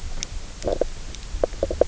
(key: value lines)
label: biophony, low growl
recorder: SoundTrap 300